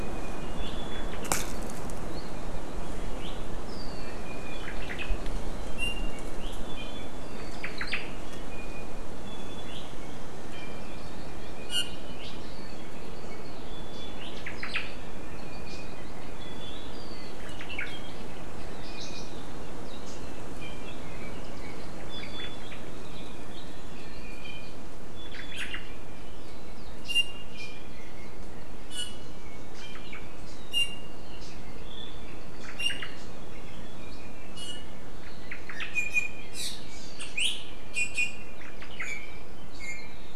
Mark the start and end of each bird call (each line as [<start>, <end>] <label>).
[0.00, 1.10] Iiwi (Drepanis coccinea)
[1.10, 1.50] Omao (Myadestes obscurus)
[3.90, 4.70] Iiwi (Drepanis coccinea)
[4.60, 5.20] Omao (Myadestes obscurus)
[5.50, 7.40] Iiwi (Drepanis coccinea)
[7.60, 8.00] Omao (Myadestes obscurus)
[8.20, 9.80] Iiwi (Drepanis coccinea)
[10.60, 12.00] Hawaii Amakihi (Chlorodrepanis virens)
[11.60, 12.00] Iiwi (Drepanis coccinea)
[13.70, 14.20] Iiwi (Drepanis coccinea)
[14.10, 14.90] Omao (Myadestes obscurus)
[15.40, 16.00] Iiwi (Drepanis coccinea)
[16.30, 16.90] Iiwi (Drepanis coccinea)
[17.50, 18.10] Omao (Myadestes obscurus)
[18.80, 19.40] Iiwi (Drepanis coccinea)
[20.60, 21.80] Iiwi (Drepanis coccinea)
[22.00, 22.80] Omao (Myadestes obscurus)
[22.10, 22.60] Iiwi (Drepanis coccinea)
[24.00, 24.80] Iiwi (Drepanis coccinea)
[25.10, 25.60] Iiwi (Drepanis coccinea)
[25.30, 25.90] Omao (Myadestes obscurus)
[27.00, 28.00] Iiwi (Drepanis coccinea)
[28.90, 29.30] Iiwi (Drepanis coccinea)
[29.70, 30.20] Omao (Myadestes obscurus)
[30.70, 31.20] Iiwi (Drepanis coccinea)
[32.60, 33.10] Omao (Myadestes obscurus)
[32.80, 34.90] Iiwi (Drepanis coccinea)
[35.20, 35.90] Omao (Myadestes obscurus)
[35.90, 36.40] Iiwi (Drepanis coccinea)
[37.90, 38.60] Iiwi (Drepanis coccinea)
[38.60, 39.00] Omao (Myadestes obscurus)
[39.00, 39.40] Iiwi (Drepanis coccinea)
[39.70, 40.20] Iiwi (Drepanis coccinea)